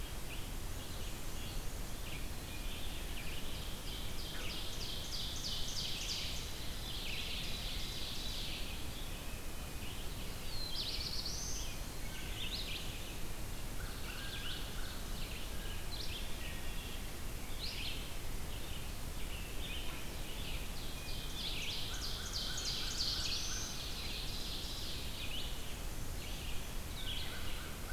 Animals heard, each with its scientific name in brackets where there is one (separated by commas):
American Crow (Corvus brachyrhynchos), Red-eyed Vireo (Vireo olivaceus), Ovenbird (Seiurus aurocapilla), Black-throated Blue Warbler (Setophaga caerulescens), Black-and-white Warbler (Mniotilta varia), Wood Thrush (Hylocichla mustelina)